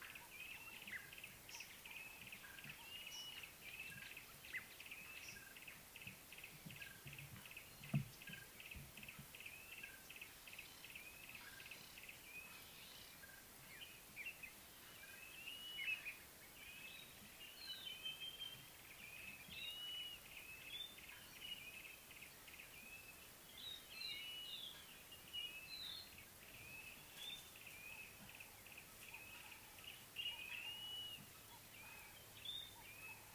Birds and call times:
Yellow-breasted Apalis (Apalis flavida): 1.3s, 22.1s, 28.9s
Common Bulbul (Pycnonotus barbatus): 16.0s
Sulphur-breasted Bushshrike (Telophorus sulfureopectus): 18.1s
White-browed Robin-Chat (Cossypha heuglini): 24.7s
Blue-naped Mousebird (Urocolius macrourus): 30.9s

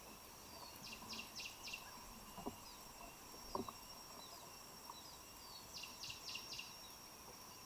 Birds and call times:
Cinnamon Bracken-Warbler (Bradypterus cinnamomeus): 1.2s
Kikuyu White-eye (Zosterops kikuyuensis): 4.2s

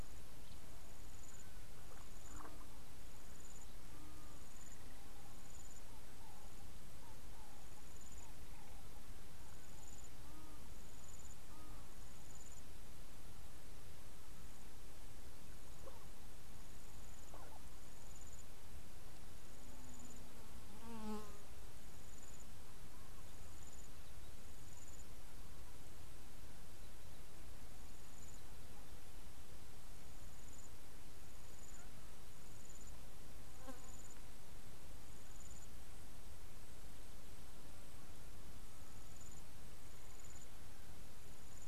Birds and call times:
Ring-necked Dove (Streptopelia capicola): 7.3s
Egyptian Goose (Alopochen aegyptiaca): 10.4s

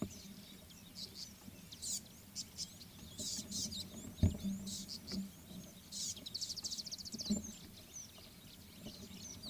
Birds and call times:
Tawny-flanked Prinia (Prinia subflava): 1.1s, 5.0s
Mariqua Sunbird (Cinnyris mariquensis): 6.8s

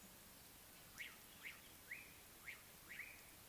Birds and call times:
Slate-colored Boubou (Laniarius funebris): 2.0s

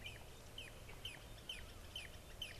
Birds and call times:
Red-and-yellow Barbet (Trachyphonus erythrocephalus): 1.5s

